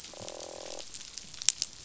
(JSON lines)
{"label": "biophony, croak", "recorder": "SoundTrap 500"}